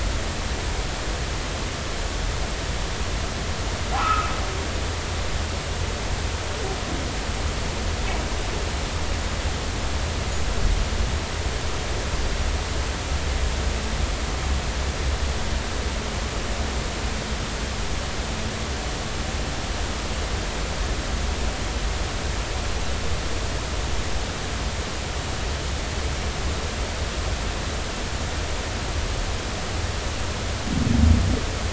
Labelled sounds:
4.0	4.3	humpback whale, 1.2 to 1.5 kHz

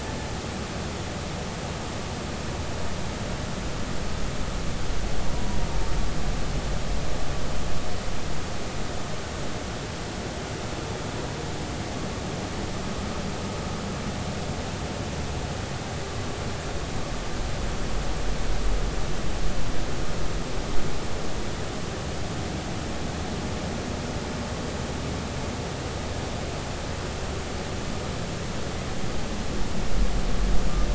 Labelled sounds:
5.3	5.6	humpback whale, 0.93 to 1.0 kHz

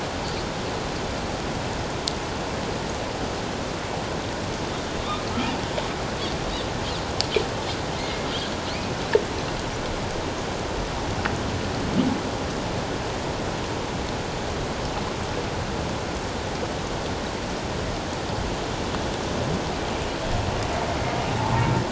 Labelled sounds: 7.9	8.3	humpback whale, 2.0 to 2.2 kHz
21.4	21.7	humpback whale, 0.78 to 1.2 kHz

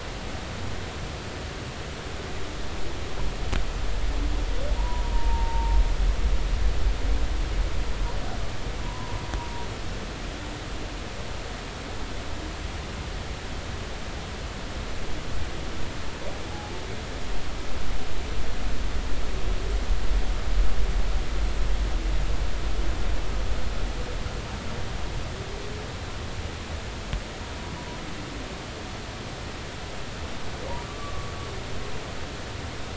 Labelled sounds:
4.8	5.8	humpback whale, 0.86 to 1.0 kHz
8.8	9.2	humpback whale, 0.93 to 1.1 kHz
16.5	16.8	humpback whale, 0.80 to 0.93 kHz
30.8	31.3	humpback whale, 1.1 to 1.2 kHz

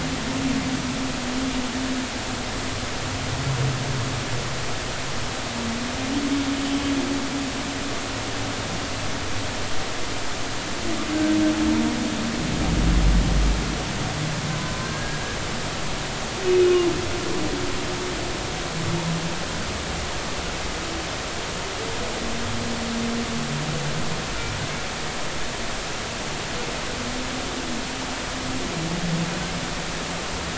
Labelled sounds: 6.6	6.9	humpback whale, 3.0 to 3.2 kHz
14.6	15.2	humpback whale, 0.96 to 1.7 kHz
16.4	16.8	humpback whale, 2.5 to 2.6 kHz

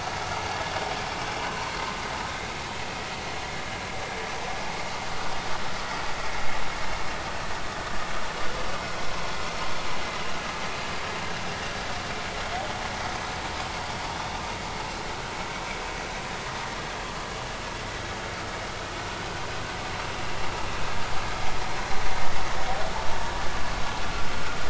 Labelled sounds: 1.4	1.8	vessel noise, 0.90 to 4.4 kHz

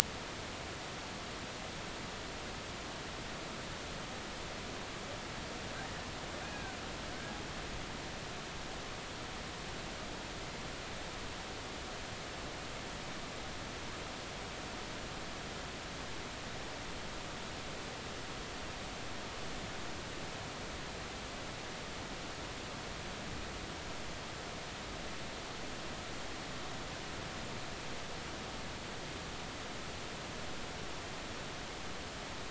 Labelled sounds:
6.4	6.7	humpback whale, 1.4 to 1.7 kHz

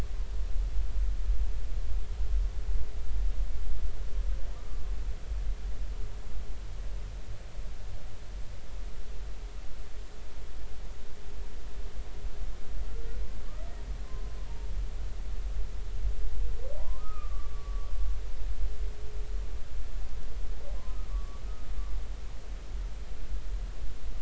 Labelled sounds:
4.5	4.8	humpback whale, 1.1 to 1.3 kHz
14.0	14.4	humpback whale, 0.99 to 1.1 kHz
16.8	17.9	humpback whale, 0.90 to 1.4 kHz
21.1	21.4	humpback whale, 1.1 to 1.2 kHz

